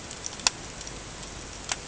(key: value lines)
label: ambient
recorder: HydroMoth